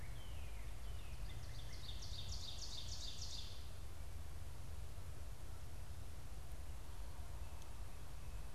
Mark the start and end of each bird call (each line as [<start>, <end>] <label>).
[0.00, 1.93] Northern Cardinal (Cardinalis cardinalis)
[1.23, 3.73] Ovenbird (Seiurus aurocapilla)